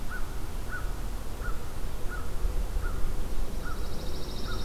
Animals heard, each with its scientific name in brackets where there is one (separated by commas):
American Crow (Corvus brachyrhynchos), Pine Warbler (Setophaga pinus)